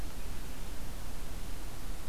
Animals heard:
forest ambience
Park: Marsh-Billings-Rockefeller National Historical Park